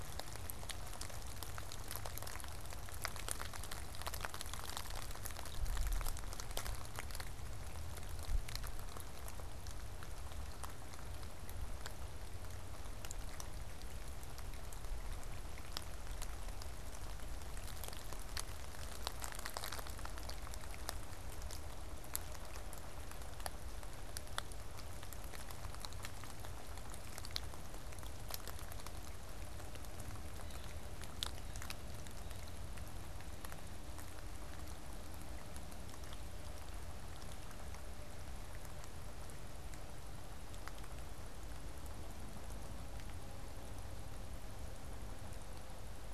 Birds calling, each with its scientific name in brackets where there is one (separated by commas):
Blue Jay (Cyanocitta cristata)